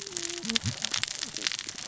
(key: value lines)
label: biophony, cascading saw
recorder: SoundTrap 600 or HydroMoth